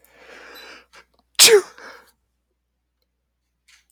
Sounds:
Sneeze